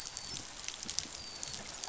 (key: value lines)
label: biophony, dolphin
recorder: SoundTrap 500